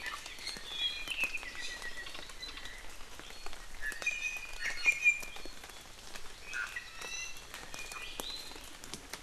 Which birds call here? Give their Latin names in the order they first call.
Himatione sanguinea, Drepanis coccinea